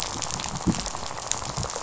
{"label": "biophony, rattle", "recorder": "SoundTrap 500"}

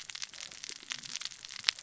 {"label": "biophony, cascading saw", "recorder": "SoundTrap 600 or HydroMoth"}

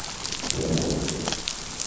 {"label": "biophony, growl", "recorder": "SoundTrap 500"}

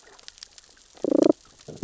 {"label": "biophony, damselfish", "recorder": "SoundTrap 600 or HydroMoth"}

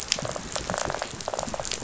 {"label": "biophony, rattle", "recorder": "SoundTrap 500"}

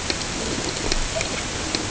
{"label": "ambient", "recorder": "HydroMoth"}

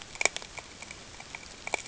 {"label": "ambient", "recorder": "HydroMoth"}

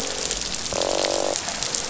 {"label": "biophony, croak", "recorder": "SoundTrap 500"}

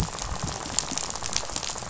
{"label": "biophony, rattle", "recorder": "SoundTrap 500"}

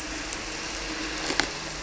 {"label": "anthrophony, boat engine", "recorder": "SoundTrap 300"}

